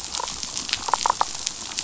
{"label": "biophony, damselfish", "recorder": "SoundTrap 500"}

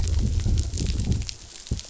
{"label": "biophony, growl", "recorder": "SoundTrap 500"}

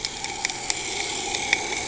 {"label": "anthrophony, boat engine", "recorder": "HydroMoth"}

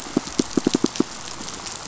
{"label": "biophony, pulse", "recorder": "SoundTrap 500"}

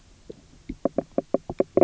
{"label": "biophony, knock croak", "recorder": "SoundTrap 300"}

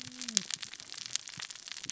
{"label": "biophony, cascading saw", "recorder": "SoundTrap 600 or HydroMoth"}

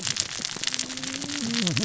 {"label": "biophony, cascading saw", "recorder": "SoundTrap 600 or HydroMoth"}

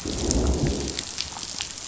{"label": "biophony, growl", "recorder": "SoundTrap 500"}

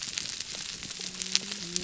{"label": "biophony, whup", "recorder": "SoundTrap 300"}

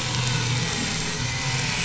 {"label": "anthrophony, boat engine", "recorder": "SoundTrap 500"}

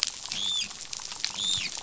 {"label": "biophony, dolphin", "recorder": "SoundTrap 500"}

